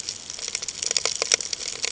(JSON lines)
{"label": "ambient", "recorder": "HydroMoth"}